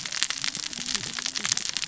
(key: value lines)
label: biophony, cascading saw
recorder: SoundTrap 600 or HydroMoth